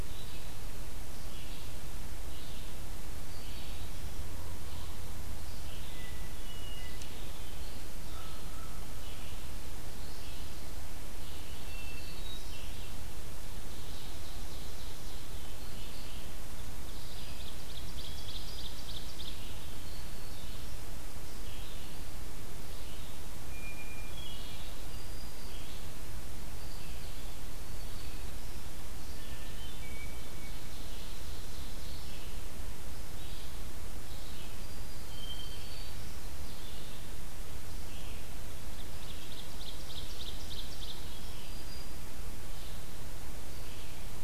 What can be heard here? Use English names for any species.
Red-eyed Vireo, Black-throated Green Warbler, Hermit Thrush, American Crow, Ovenbird